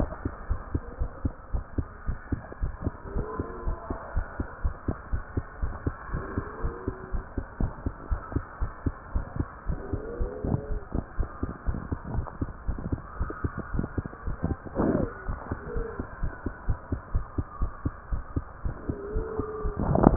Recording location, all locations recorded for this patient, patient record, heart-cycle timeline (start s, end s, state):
tricuspid valve (TV)
aortic valve (AV)+pulmonary valve (PV)+tricuspid valve (TV)+mitral valve (MV)
#Age: Child
#Sex: Male
#Height: 142.0 cm
#Weight: 37.1 kg
#Pregnancy status: False
#Murmur: Absent
#Murmur locations: nan
#Most audible location: nan
#Systolic murmur timing: nan
#Systolic murmur shape: nan
#Systolic murmur grading: nan
#Systolic murmur pitch: nan
#Systolic murmur quality: nan
#Diastolic murmur timing: nan
#Diastolic murmur shape: nan
#Diastolic murmur grading: nan
#Diastolic murmur pitch: nan
#Diastolic murmur quality: nan
#Outcome: Normal
#Campaign: 2015 screening campaign
0.00	0.34	unannotated
0.34	0.48	diastole
0.48	0.62	S1
0.62	0.72	systole
0.72	0.82	S2
0.82	0.98	diastole
0.98	1.12	S1
1.12	1.22	systole
1.22	1.32	S2
1.32	1.50	diastole
1.50	1.64	S1
1.64	1.74	systole
1.74	1.88	S2
1.88	2.06	diastole
2.06	2.18	S1
2.18	2.28	systole
2.28	2.42	S2
2.42	2.60	diastole
2.60	2.74	S1
2.74	2.82	systole
2.82	2.92	S2
2.92	3.12	diastole
3.12	3.28	S1
3.28	3.36	systole
3.36	3.46	S2
3.46	3.64	diastole
3.64	3.76	S1
3.76	3.86	systole
3.86	3.96	S2
3.96	4.13	diastole
4.13	4.24	S1
4.24	4.37	systole
4.37	4.45	S2
4.45	4.62	diastole
4.62	4.76	S1
4.76	4.84	systole
4.84	4.96	S2
4.96	5.10	diastole
5.10	5.24	S1
5.24	5.34	systole
5.34	5.44	S2
5.44	5.60	diastole
5.60	5.74	S1
5.74	5.84	systole
5.84	5.94	S2
5.94	6.12	diastole
6.12	6.26	S1
6.26	6.36	systole
6.36	6.46	S2
6.46	6.62	diastole
6.62	6.76	S1
6.76	6.84	systole
6.84	6.94	S2
6.94	7.12	diastole
7.12	7.22	S1
7.22	7.34	systole
7.34	7.44	S2
7.44	7.58	diastole
7.58	7.74	S1
7.74	7.84	systole
7.84	7.94	S2
7.94	8.10	diastole
8.10	8.20	S1
8.20	8.32	systole
8.32	8.44	S2
8.44	8.60	diastole
8.60	8.72	S1
8.72	8.84	systole
8.84	8.94	S2
8.94	9.12	diastole
9.12	9.26	S1
9.26	9.36	systole
9.36	9.50	S2
9.50	9.66	diastole
9.66	9.80	S1
9.80	9.90	systole
9.90	10.02	S2
10.02	10.18	diastole
10.18	10.32	S1
10.32	10.42	systole
10.42	10.52	S2
10.52	10.68	diastole
10.68	10.80	S1
10.80	10.92	systole
10.92	11.06	S2
11.06	11.18	diastole
11.18	11.28	S1
11.28	11.42	systole
11.42	11.54	S2
11.54	11.68	diastole
11.68	11.82	S1
11.82	11.90	systole
11.90	12.00	S2
12.00	12.12	diastole
12.12	12.26	S1
12.26	12.40	systole
12.40	12.50	S2
12.50	12.66	diastole
12.66	12.80	S1
12.80	12.90	systole
12.90	13.02	S2
13.02	13.09	diastole
13.09	20.16	unannotated